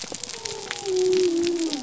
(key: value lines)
label: biophony
recorder: SoundTrap 300